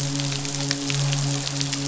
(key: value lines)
label: biophony, midshipman
recorder: SoundTrap 500